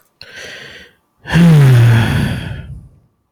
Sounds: Sigh